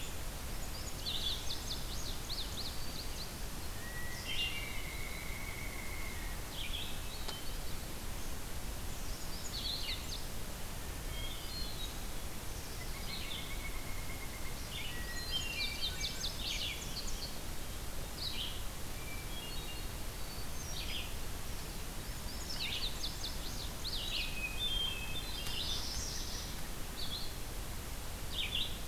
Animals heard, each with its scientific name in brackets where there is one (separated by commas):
Hermit Thrush (Catharus guttatus), Red-eyed Vireo (Vireo olivaceus), Chestnut-sided Warbler (Setophaga pensylvanica), Indigo Bunting (Passerina cyanea), Pileated Woodpecker (Dryocopus pileatus)